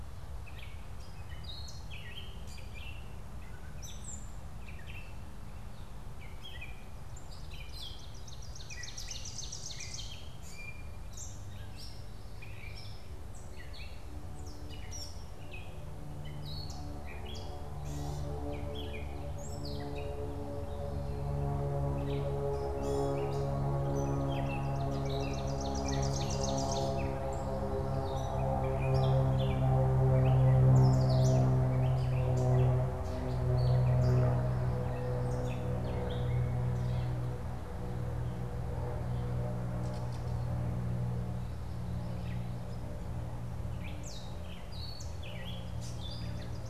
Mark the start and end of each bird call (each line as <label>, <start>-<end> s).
Gray Catbird (Dumetella carolinensis), 0.0-46.7 s
Ovenbird (Seiurus aurocapilla), 7.1-10.7 s
Ovenbird (Seiurus aurocapilla), 23.7-27.2 s
Ovenbird (Seiurus aurocapilla), 45.9-46.7 s